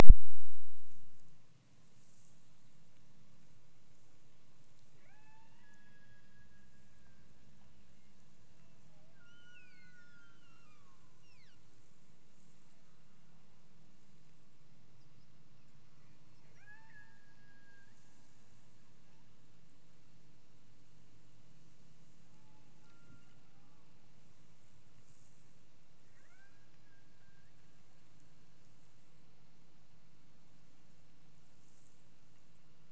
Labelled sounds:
4.9	7.3	killer whale, Bigg's (transient), Gulf of Alaska transient, 0.27 to 3.1 kHz
8.9	11.7	killer whale, Bigg's (transient), Gulf of Alaska transient, 0.59 to 6.7 kHz
16.4	18.0	killer whale, Bigg's (transient), Gulf of Alaska transient, 0.48 to 2.8 kHz
22.3	23.9	killer whale, Bigg's (transient), Gulf of Alaska transient, 0.68 to 1.5 kHz
26.2	27.6	killer whale, Bigg's (transient), Gulf of Alaska transient, 0.48 to 2.5 kHz

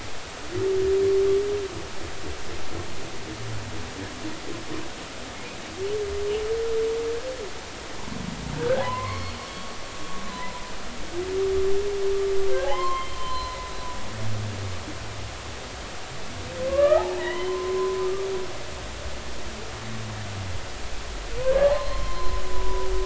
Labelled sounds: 8.6	9.4	humpback whale, 0.93 to 4.4 kHz
10.3	10.6	humpback whale, 0.93 to 1.1 kHz
12.6	14.2	humpback whale, 0.80 to 4.2 kHz
16.7	18.3	humpback whale, 0.90 to 3.1 kHz
21.4	22.9	humpback whale, 0.93 to 4.3 kHz

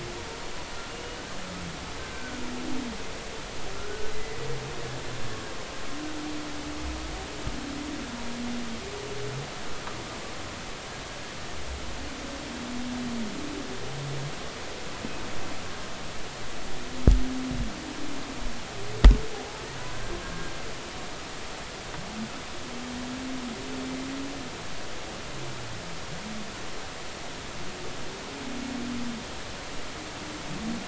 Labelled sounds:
0.9	1.2	humpback whale, 2.8 to 3.0 kHz
2.0	2.4	humpback whale, 1.4 to 1.6 kHz
3.8	4.4	humpback whale, 1.3 to 2.1 kHz
19.3	20.5	humpback whale, 0.80 to 1.7 kHz

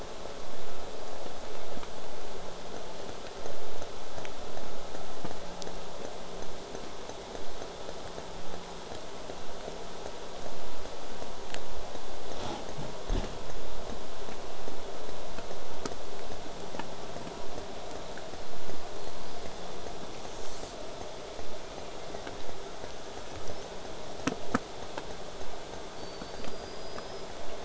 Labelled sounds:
20.1	20.8	killer whale, southern resident, J pod, buzz, 3.0 to 8.0 kHz
26.0	27.3	killer whale, southern resident, J pod, whistle, 4.3 to 5.2 kHz

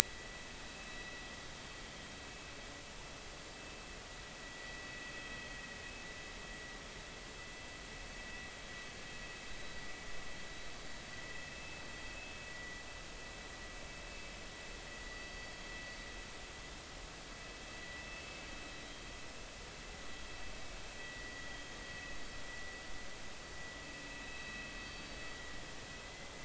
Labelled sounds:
0.0	0.3	vessel noise, 1.9 to 2.0 kHz
0.7	1.0	vessel noise, 2.6 to 2.7 kHz
4.5	4.8	vessel noise, 1.9 to 2.0 kHz
11.5	11.8	vessel noise, 2.5 to 2.7 kHz
12.5	12.8	vessel noise, 1.9 to 2.0 kHz
21.0	21.3	vessel noise, 1.8 to 2.1 kHz
24.2	24.7	vessel noise, 2.5 to 4.0 kHz
26.0	26.3	vessel noise, 2.0 to 2.1 kHz

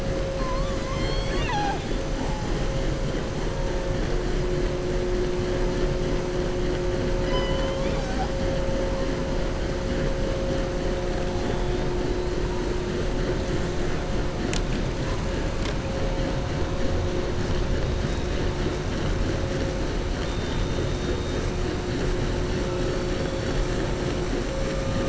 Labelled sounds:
0.3	1.9	killer whale, southern resident, 0.71 to 7.7 kHz
7.1	8.3	killer whale, southern resident, 0.70 to 7.0 kHz

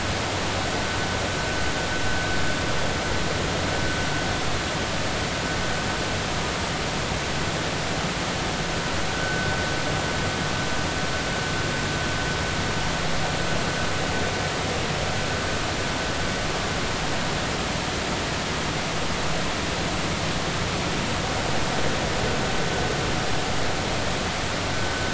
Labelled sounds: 9.1	9.5	vessel noise, 1.4 to 1.6 kHz

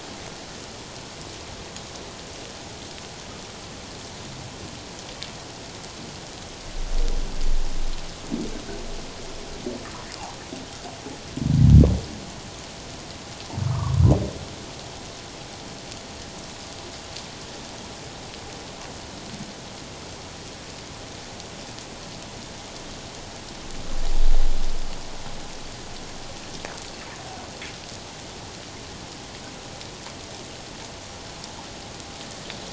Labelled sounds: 13.7	14.0	humpback whale, 0.91 to 1.3 kHz

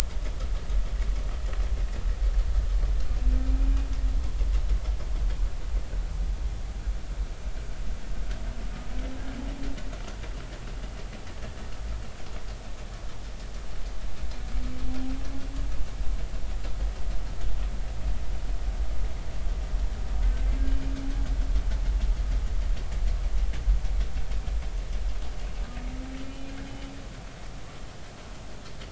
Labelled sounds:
26.2	26.5	humpback whale, 2.4 to 2.5 kHz

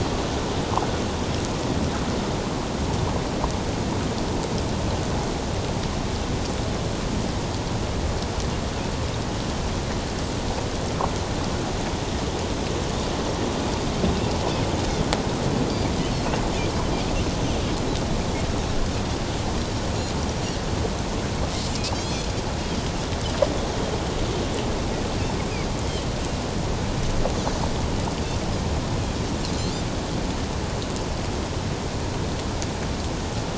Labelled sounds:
21.9	22.3	Pacific white-sided dolphin, 3.1 to 5.2 kHz
25.8	26.1	Pacific white-sided dolphin, 3.0 to 3.3 kHz

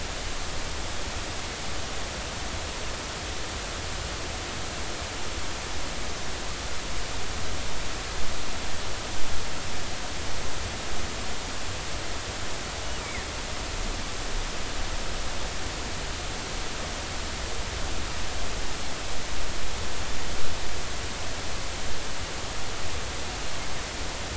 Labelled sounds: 13.0	13.2	killer whale, northern resident, G clan, 1.7 to 2.5 kHz

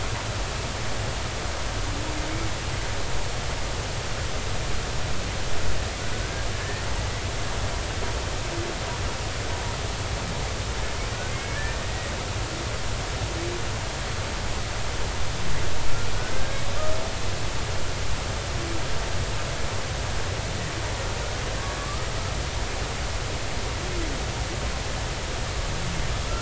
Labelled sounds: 6.6	6.8	humpback whale, 1.6 to 1.9 kHz
11.3	11.6	humpback whale, 2.0 to 2.3 kHz
16.3	16.6	humpback whale, 1.5 to 1.7 kHz
21.8	22.1	humpback whale, 1.1 to 1.3 kHz

